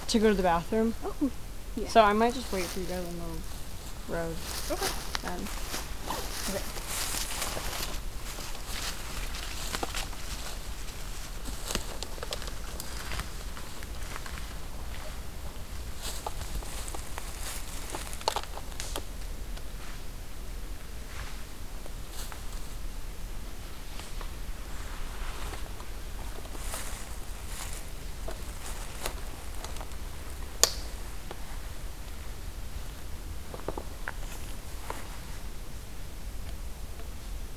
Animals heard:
forest ambience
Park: Katahdin Woods and Waters National Monument